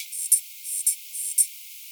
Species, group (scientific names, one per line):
Poecilimon nobilis
Orthoptera